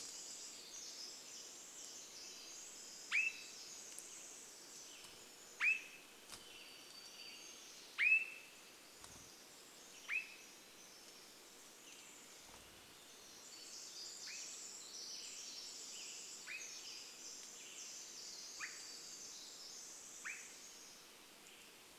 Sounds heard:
Pacific Wren song, Swainson's Thrush call, Western Tanager song, warbler song

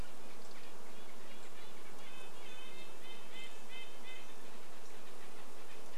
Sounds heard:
insect buzz, Red-breasted Nuthatch song, Red-breasted Nuthatch call

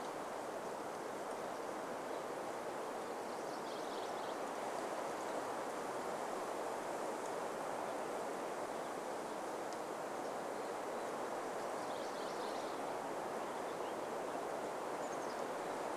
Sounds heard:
Chestnut-backed Chickadee call, Warbling Vireo song, MacGillivray's Warbler song

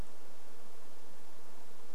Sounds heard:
insect buzz

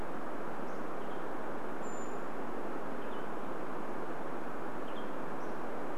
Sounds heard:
Western Tanager call, Brown Creeper call, Hammond's Flycatcher song

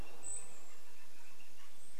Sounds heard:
Canada Jay call, woodpecker drumming, Golden-crowned Kinglet call

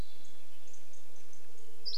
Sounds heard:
Hermit Thrush call, Dark-eyed Junco call, Red-breasted Nuthatch song, Dusky Flycatcher song

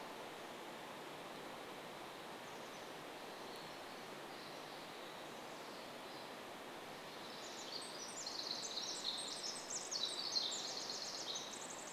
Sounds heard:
Pacific Wren song, Chestnut-backed Chickadee call

